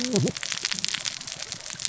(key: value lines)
label: biophony, cascading saw
recorder: SoundTrap 600 or HydroMoth